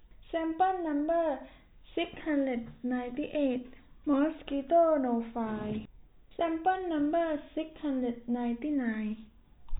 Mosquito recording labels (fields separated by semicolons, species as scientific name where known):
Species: no mosquito; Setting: cup